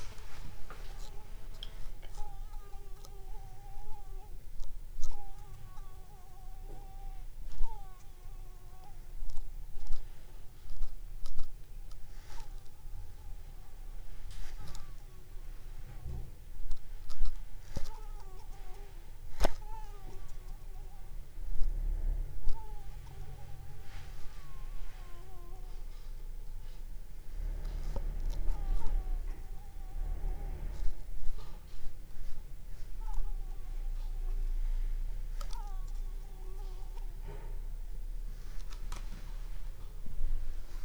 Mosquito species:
Anopheles squamosus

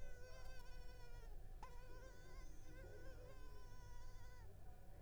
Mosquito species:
Culex pipiens complex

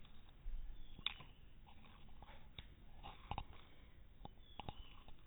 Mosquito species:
no mosquito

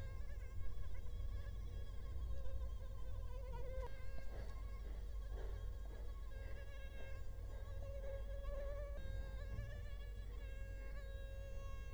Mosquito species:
Culex quinquefasciatus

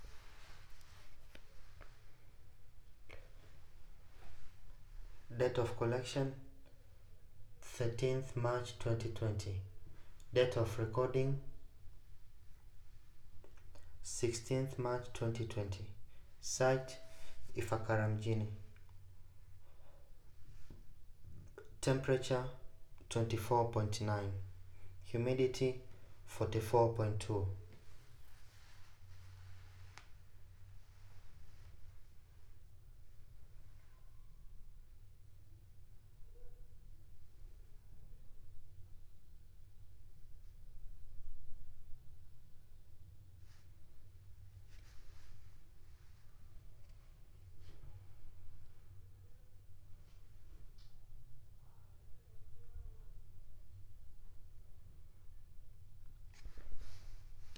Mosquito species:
no mosquito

